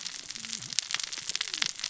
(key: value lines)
label: biophony, cascading saw
recorder: SoundTrap 600 or HydroMoth